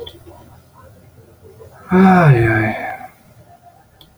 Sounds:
Sigh